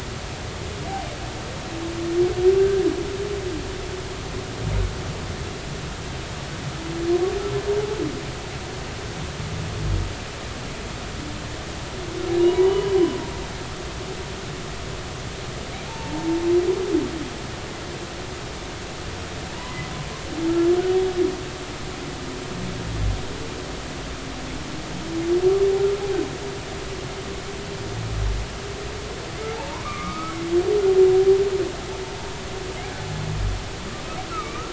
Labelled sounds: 2.6	2.9	humpback whale, 1.5 to 1.7 kHz
12.4	13.0	humpback whale, 0.90 to 3.0 kHz
15.9	16.4	humpback whale, 0.83 to 0.99 kHz
29.5	30.5	humpback whale, 0.80 to 2.4 kHz
34.3	34.7	humpback whale, 1.1 to 2.5 kHz

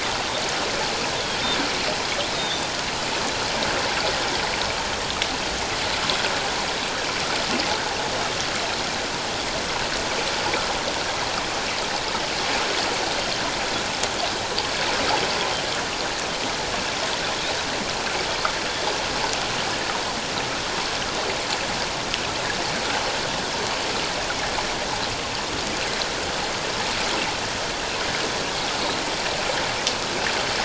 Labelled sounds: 2.3	2.7	Pacific white-sided dolphin, 3.3 to 3.9 kHz

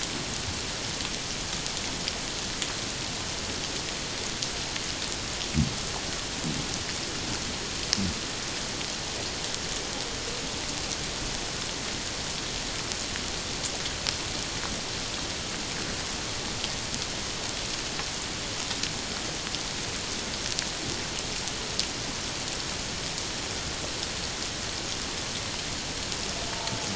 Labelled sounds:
26.5	26.8	humpback whale, 0.84 to 0.97 kHz

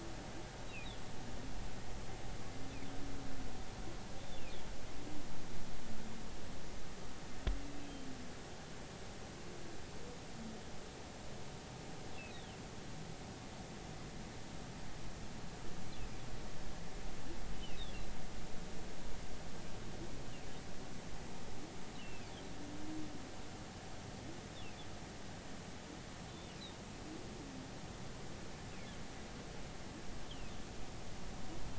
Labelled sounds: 12.3	12.6	humpback whale, 3.0 to 4.1 kHz
22.0	22.3	humpback whale, 2.3 to 3.1 kHz

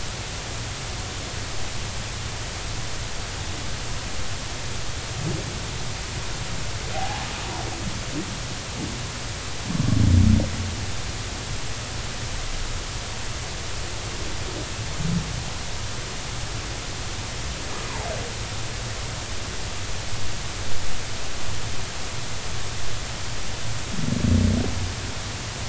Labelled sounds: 6.9	7.2	humpback whale, 0.80 to 0.93 kHz

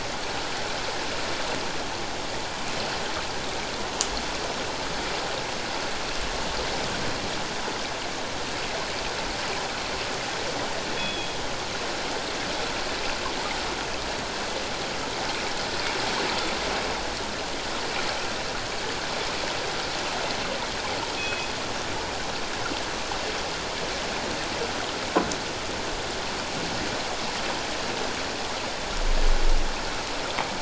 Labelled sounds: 10.9	11.4	killer whale, northern resident, G clan, call N24ii, 3.2 to 3.4 kHz
21.2	21.5	killer whale, northern resident, G clan, call N24ii, 2.5 to 3.5 kHz

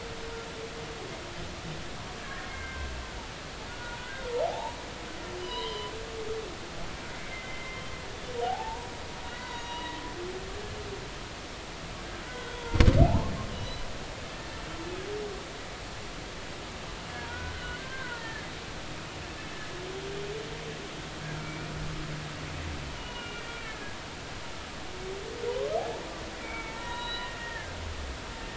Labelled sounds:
2.4	2.9	humpback whale, 1.5 to 2.2 kHz
3.7	4.7	humpback whale, 0.80 to 1.7 kHz
5.4	5.9	humpback whale, 0.93 to 5.0 kHz
7.1	8.9	humpback whale, 0.80 to 2.1 kHz
9.3	10.0	humpback whale, 0.90 to 3.9 kHz
12.3	12.6	humpback whale, 1.4 to 1.6 kHz
13.0	13.9	humpback whale, 0.80 to 4.2 kHz
17.3	18.5	humpback whale, 0.86 to 1.9 kHz
21.4	21.7	humpback whale, 2.2 to 2.5 kHz
23.0	24.0	humpback whale, 1.3 to 3.0 kHz
26.4	27.7	humpback whale, 0.86 to 4.0 kHz

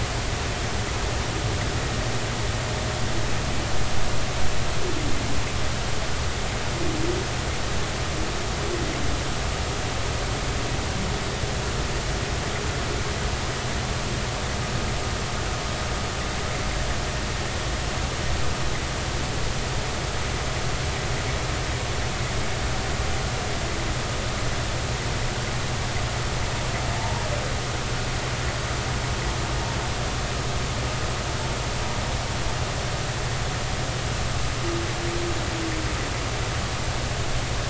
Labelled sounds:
27.0	27.2	humpback whale, 0.80 to 1.0 kHz

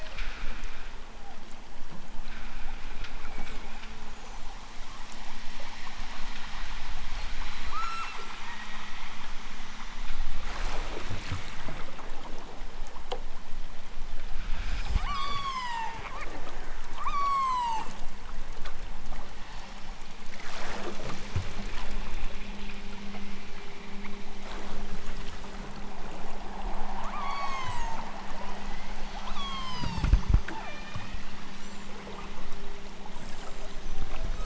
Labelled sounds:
0.0	0.6	killer whale, southern Alaska resident, 0.83 to 3.7 kHz
7.6	9.1	killer whale, southern Alaska resident, 0.83 to 8.0 kHz
14.9	16.1	killer whale, southern Alaska resident, 0.51 to 8.0 kHz
16.9	18.0	killer whale, southern Alaska resident, 0.51 to 8.0 kHz
27.1	28.0	killer whale, southern Alaska resident, 0.69 to 8.0 kHz
28.6	30.2	killer whale, southern Alaska resident, 0.69 to 8.0 kHz
30.4	31.9	killer whale, southern Alaska resident, 0.37 to 8.0 kHz

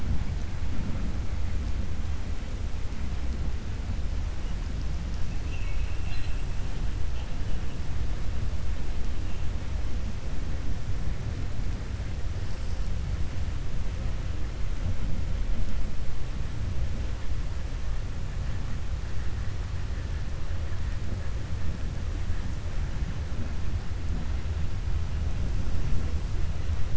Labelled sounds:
5.4	6.4	vessel noise, 1.7 to 4.1 kHz

